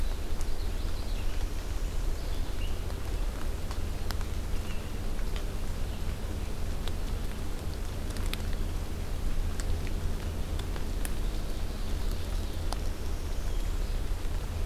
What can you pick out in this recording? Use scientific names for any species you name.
Seiurus aurocapilla, Vireo olivaceus, Setophaga americana